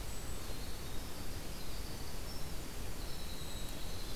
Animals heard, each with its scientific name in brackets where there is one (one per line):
Golden-crowned Kinglet (Regulus satrapa)
Winter Wren (Troglodytes hiemalis)